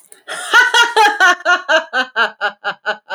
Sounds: Laughter